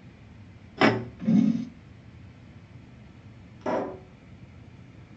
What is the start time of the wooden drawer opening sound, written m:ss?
0:01